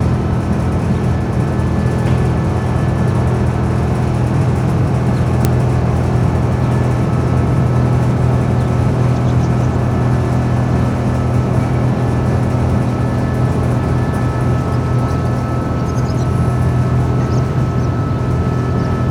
Is this a machine?
yes